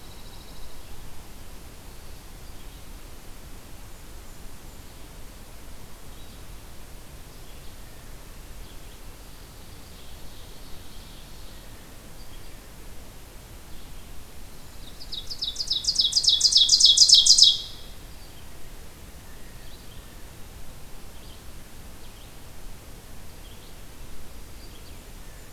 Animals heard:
Pine Warbler (Setophaga pinus), Ovenbird (Seiurus aurocapilla), Blackburnian Warbler (Setophaga fusca), Red-eyed Vireo (Vireo olivaceus)

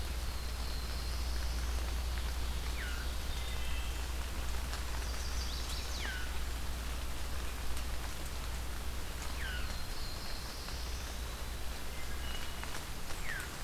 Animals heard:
Eastern Wood-Pewee (Contopus virens), Wood Thrush (Hylocichla mustelina), Chestnut-sided Warbler (Setophaga pensylvanica), Black-throated Blue Warbler (Setophaga caerulescens), Veery (Catharus fuscescens)

